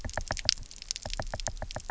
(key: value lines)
label: biophony, knock
recorder: SoundTrap 300